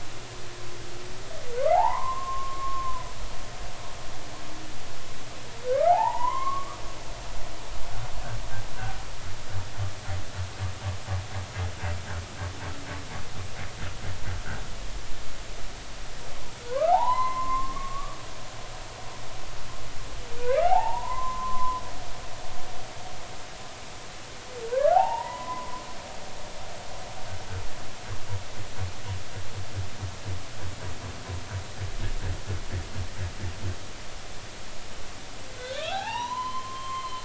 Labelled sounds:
1.5	3.1	humpback whale, 0.80 to 1.4 kHz
5.9	6.8	humpback whale, 0.80 to 2.2 kHz
16.7	18.2	humpback whale, 0.80 to 4.2 kHz
20.7	21.8	humpback whale, 0.80 to 1.1 kHz
24.7	25.8	humpback whale, 0.80 to 2.9 kHz
35.6	37.2	humpback whale, 0.80 to 4.2 kHz

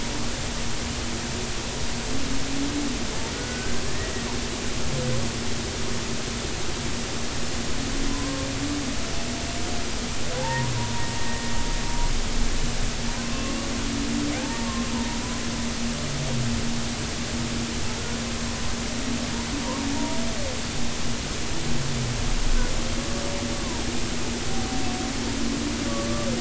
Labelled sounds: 3.4	4.1	humpback whale, 1.4 to 2.0 kHz
8.1	8.5	humpback whale, 0.90 to 1.1 kHz
10.4	11.5	humpback whale, 0.80 to 1.9 kHz
13.3	13.7	humpback whale, 2.6 to 2.8 kHz
14.4	14.9	humpback whale, 0.80 to 1.1 kHz
19.9	20.2	humpback whale, 0.83 to 0.99 kHz

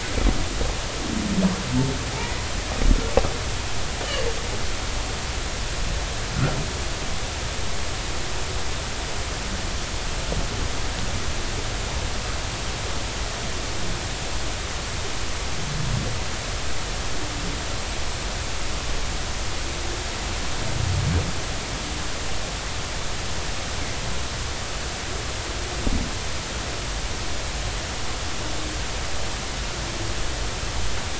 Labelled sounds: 2.1	2.3	humpback whale, 0.80 to 0.99 kHz

